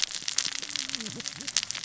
{"label": "biophony, cascading saw", "recorder": "SoundTrap 600 or HydroMoth"}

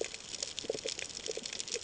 {"label": "ambient", "recorder": "HydroMoth"}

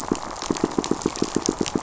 {"label": "biophony, pulse", "recorder": "SoundTrap 500"}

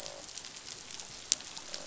{"label": "biophony, croak", "recorder": "SoundTrap 500"}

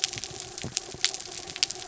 {"label": "anthrophony, mechanical", "recorder": "SoundTrap 300"}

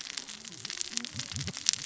{"label": "biophony, cascading saw", "recorder": "SoundTrap 600 or HydroMoth"}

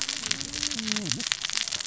{"label": "biophony, cascading saw", "recorder": "SoundTrap 600 or HydroMoth"}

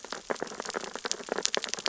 {"label": "biophony, sea urchins (Echinidae)", "recorder": "SoundTrap 600 or HydroMoth"}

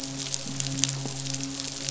{"label": "biophony, midshipman", "recorder": "SoundTrap 500"}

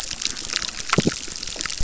{"label": "biophony, chorus", "recorder": "SoundTrap 600"}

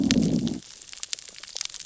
{"label": "biophony, growl", "recorder": "SoundTrap 600 or HydroMoth"}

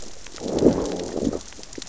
{"label": "biophony, growl", "recorder": "SoundTrap 600 or HydroMoth"}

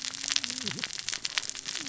{"label": "biophony, cascading saw", "recorder": "SoundTrap 600 or HydroMoth"}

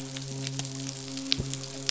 {"label": "biophony, midshipman", "recorder": "SoundTrap 500"}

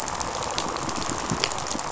{"label": "biophony, rattle response", "recorder": "SoundTrap 500"}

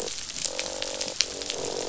{"label": "biophony, croak", "recorder": "SoundTrap 500"}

